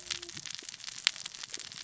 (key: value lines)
label: biophony, cascading saw
recorder: SoundTrap 600 or HydroMoth